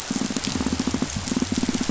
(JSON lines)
{"label": "biophony, pulse", "recorder": "SoundTrap 500"}